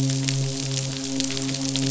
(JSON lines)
{"label": "biophony, midshipman", "recorder": "SoundTrap 500"}